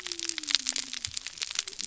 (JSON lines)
{"label": "biophony", "recorder": "SoundTrap 300"}